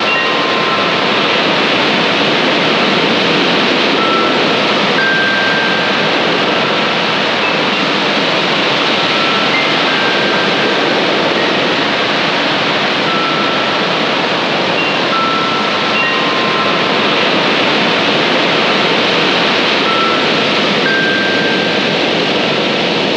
Is there a pause?
no